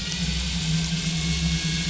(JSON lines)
{"label": "anthrophony, boat engine", "recorder": "SoundTrap 500"}